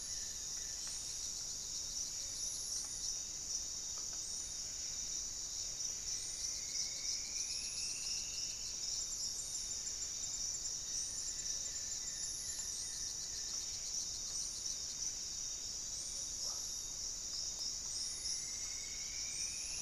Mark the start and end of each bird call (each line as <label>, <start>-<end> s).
Goeldi's Antbird (Akletos goeldii), 0.0-1.1 s
Buff-breasted Wren (Cantorchilus leucotis), 0.0-19.8 s
Paradise Tanager (Tangara chilensis), 0.0-19.8 s
Striped Woodcreeper (Xiphorhynchus obsoletus), 5.9-8.9 s
Black-faced Antthrush (Formicarius analis), 9.7-11.8 s
Goeldi's Antbird (Akletos goeldii), 10.6-13.9 s
unidentified bird, 16.3-16.8 s
Striped Woodcreeper (Xiphorhynchus obsoletus), 18.0-19.8 s